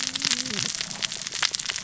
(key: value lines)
label: biophony, cascading saw
recorder: SoundTrap 600 or HydroMoth